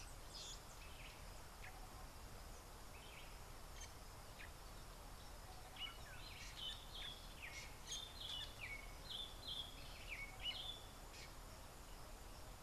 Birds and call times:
Tropical Boubou (Laniarius major): 0:05.7

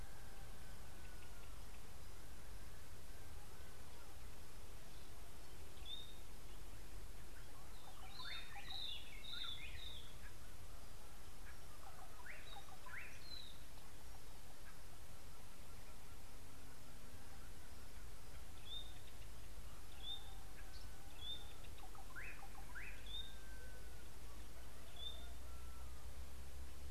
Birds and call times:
White-browed Robin-Chat (Cossypha heuglini): 0:09.1, 0:20.0
Slate-colored Boubou (Laniarius funebris): 0:12.3, 0:22.2

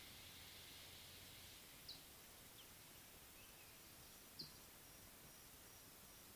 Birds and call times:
Scarlet-chested Sunbird (Chalcomitra senegalensis): 0:01.8

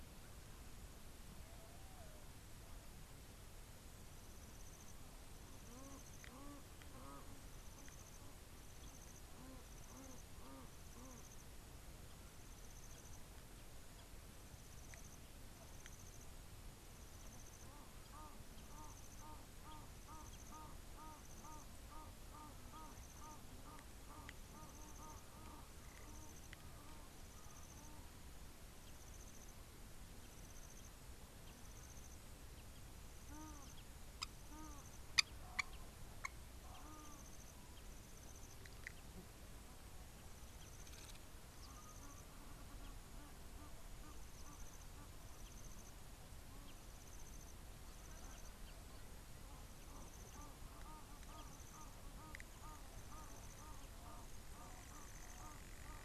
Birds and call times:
Egyptian Goose (Alopochen aegyptiaca): 0:06.5, 0:22.8, 0:33.4, 0:54.2
Blacksmith Lapwing (Vanellus armatus): 0:35.2

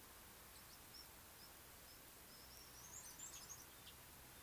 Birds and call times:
Mariqua Sunbird (Cinnyris mariquensis): 0:03.0

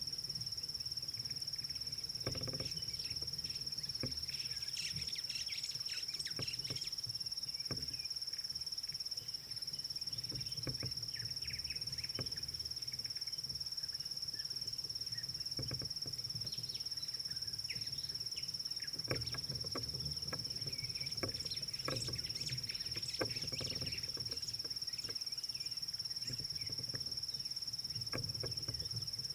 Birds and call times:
White-browed Sparrow-Weaver (Plocepasser mahali): 0:05.3, 0:22.5

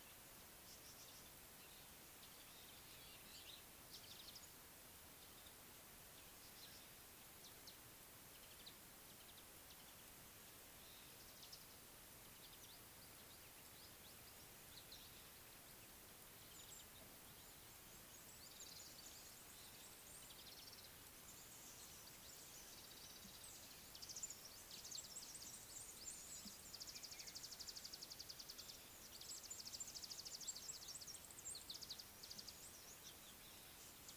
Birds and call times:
Mariqua Sunbird (Cinnyris mariquensis): 0:27.9

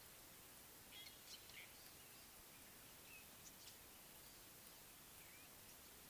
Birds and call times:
Fork-tailed Drongo (Dicrurus adsimilis): 0:01.0

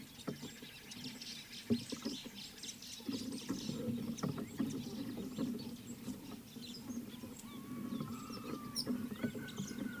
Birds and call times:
Red-headed Weaver (Anaplectes rubriceps): 0:08.8

